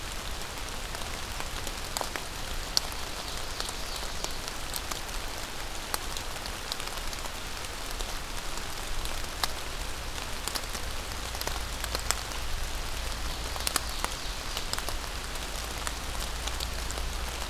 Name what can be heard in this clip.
Ovenbird